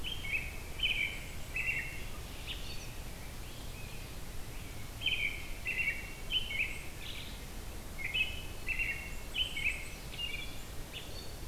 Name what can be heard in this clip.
American Robin, Black-capped Chickadee